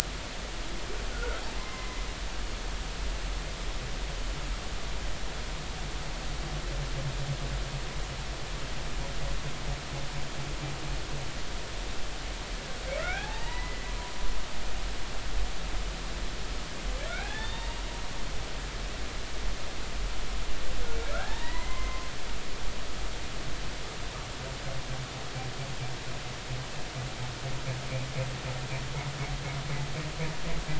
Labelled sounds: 1.1	2.0	humpback whale, 0.96 to 2.2 kHz
13.0	13.9	humpback whale, 0.80 to 2.8 kHz
17.1	17.8	humpback whale, 0.86 to 3.8 kHz
21.1	22.1	humpback whale, 0.80 to 4.1 kHz

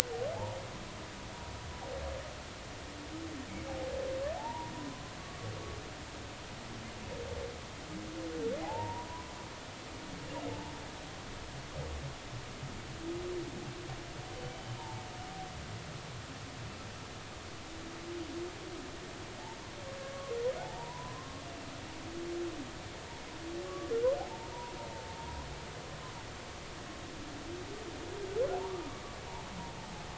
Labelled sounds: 4.4	5.0	humpback whale, 0.80 to 1.1 kHz
8.6	9.3	humpback whale, 0.80 to 1.1 kHz
14.8	15.0	humpback whale, 0.83 to 1.0 kHz
20.1	21.4	humpback whale, 0.80 to 1.2 kHz
23.7	23.9	humpback whale, 1.1 to 1.2 kHz
24.9	25.2	humpback whale, 0.86 to 0.93 kHz

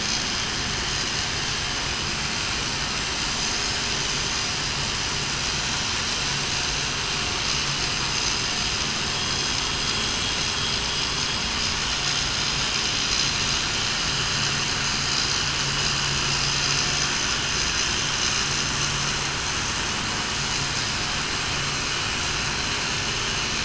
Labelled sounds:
9.0	9.4	vessel noise, 3.2 to 3.3 kHz

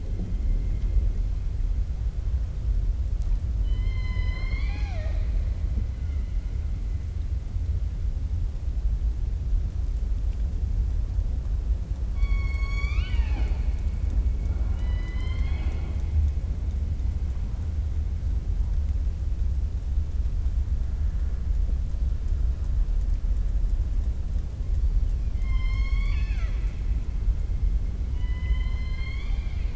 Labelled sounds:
3.5	5.4	killer whale, 0.61 to 6.5 kHz
12.1	13.7	killer whale, 0.63 to 7.4 kHz
14.5	16.0	killer whale, 0.37 to 7.6 kHz
25.3	26.8	killer whale, 0.90 to 7.6 kHz
28.1	29.7	killer whale, 0.83 to 5.7 kHz

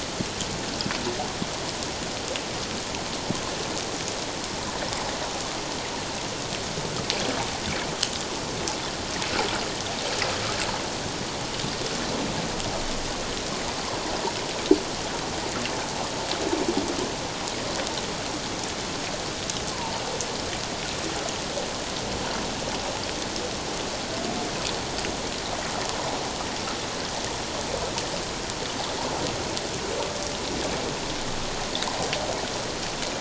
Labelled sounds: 19.7	20.0	humpback whale, 0.84 to 1.1 kHz

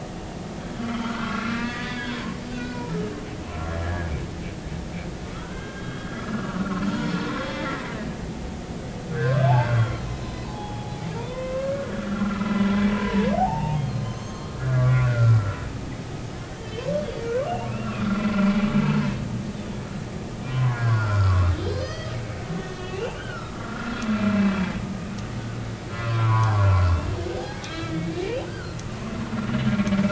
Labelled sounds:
0.8	2.9	humpback whale, 0.93 to 4.7 kHz
3.8	4.1	humpback whale, 1.6 to 1.8 kHz
5.4	7.5	humpback whale, 0.86 to 3.4 kHz
8.4	15.6	humpback whale, 0.80 to 6.5 kHz
16.5	16.9	humpback whale, 1.7 to 3.2 kHz
17.7	18.1	humpback whale, 2.4 to 2.8 kHz
18.4	18.6	humpback whale, 2.3 to 2.5 kHz
20.5	22.1	humpback whale, 0.93 to 5.1 kHz
22.6	24.5	humpback whale, 1.2 to 4.1 kHz
25.9	26.6	humpback whale, 0.80 to 1.2 kHz
27.2	28.8	humpback whale, 0.80 to 4.0 kHz

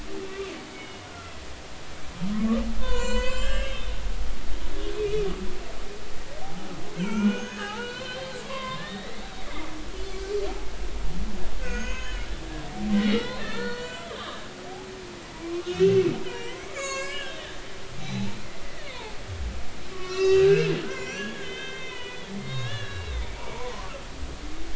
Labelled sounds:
0.7	1.3	humpback whale, 1.3 to 3.0 kHz
2.3	3.9	humpback whale, 0.90 to 7.6 kHz
4.7	5.3	humpback whale, 2.3 to 3.6 kHz
6.4	9.2	humpback whale, 0.80 to 6.8 kHz
11.6	12.3	humpback whale, 0.96 to 6.8 kHz
13.0	14.5	humpback whale, 1.0 to 7.6 kHz
15.4	17.6	humpback whale, 0.90 to 7.8 kHz
18.0	18.9	humpback whale, 0.80 to 4.1 kHz
19.9	23.8	humpback whale, 0.83 to 6.2 kHz

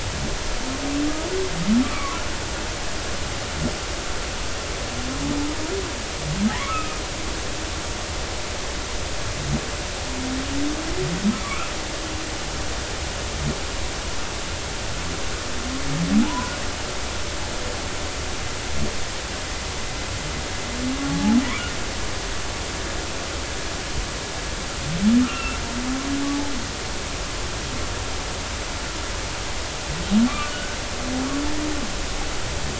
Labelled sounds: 1.8	2.2	humpback whale, 0.96 to 1.3 kHz
6.5	7.0	humpback whale, 0.80 to 2.7 kHz
11.4	11.7	humpback whale, 1.0 to 1.4 kHz
16.2	16.6	humpback whale, 0.83 to 1.5 kHz
21.1	21.4	humpback whale, 0.80 to 0.90 kHz
25.2	25.6	humpback whale, 1.2 to 2.8 kHz
30.3	30.8	humpback whale, 1.1 to 1.6 kHz

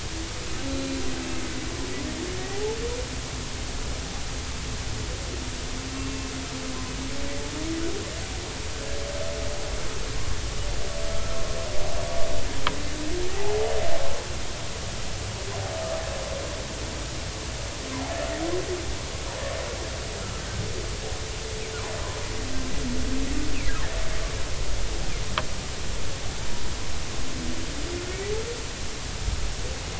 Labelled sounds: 0.7	1.0	humpback whale, 2.4 to 4.1 kHz
2.5	2.8	humpback whale, 0.80 to 0.93 kHz
6.0	6.3	humpback whale, 2.6 to 2.8 kHz
13.3	13.7	humpback whale, 0.80 to 0.93 kHz

